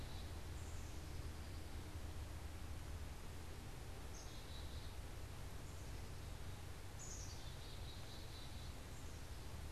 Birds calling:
Black-capped Chickadee (Poecile atricapillus)

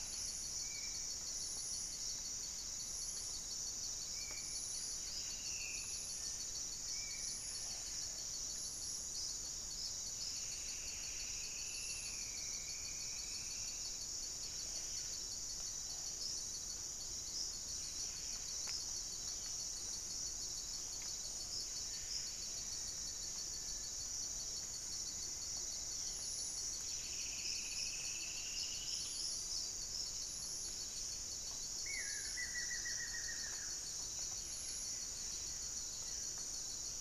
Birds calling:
Amazonian Trogon (Trogon ramonianus), Black-faced Antthrush (Formicarius analis), Striped Woodcreeper (Xiphorhynchus obsoletus), Black-spotted Bare-eye (Phlegopsis nigromaculata), Horned Screamer (Anhima cornuta), Spot-winged Antshrike (Pygiptila stellaris), unidentified bird, Buff-breasted Wren (Cantorchilus leucotis)

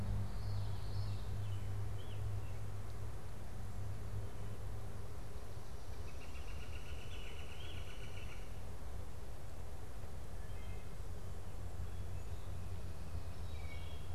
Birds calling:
American Robin (Turdus migratorius), Northern Flicker (Colaptes auratus), Common Yellowthroat (Geothlypis trichas), Wood Thrush (Hylocichla mustelina)

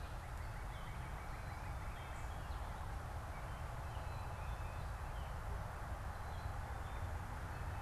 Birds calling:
Black-capped Chickadee (Poecile atricapillus), Northern Cardinal (Cardinalis cardinalis)

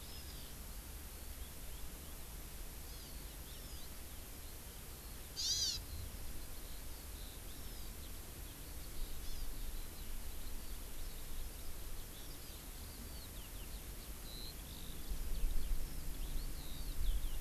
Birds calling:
Hawaii Amakihi (Chlorodrepanis virens), Eurasian Skylark (Alauda arvensis)

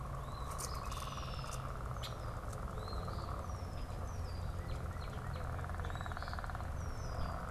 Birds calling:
Northern Cardinal (Cardinalis cardinalis), Red-winged Blackbird (Agelaius phoeniceus), Eastern Phoebe (Sayornis phoebe), unidentified bird

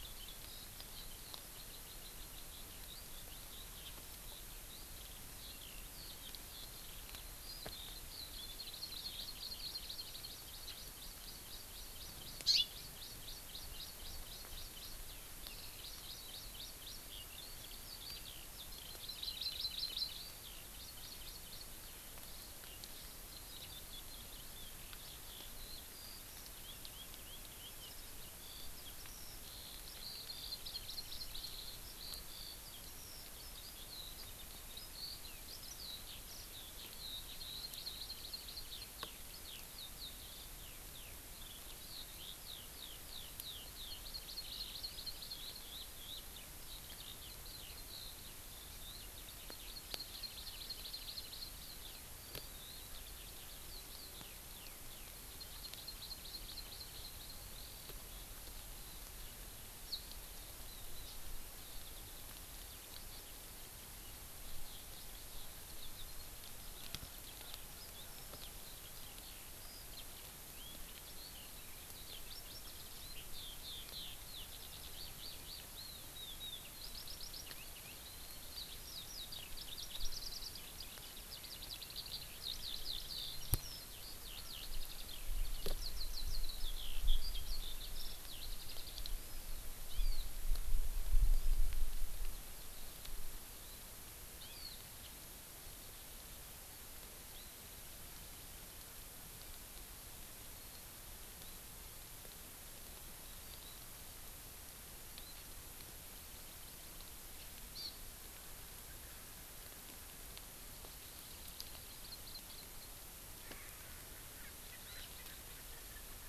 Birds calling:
Hawaii Amakihi (Chlorodrepanis virens), Eurasian Skylark (Alauda arvensis), Erckel's Francolin (Pternistis erckelii)

